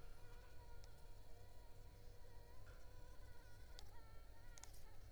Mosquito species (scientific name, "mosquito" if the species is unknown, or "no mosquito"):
Anopheles arabiensis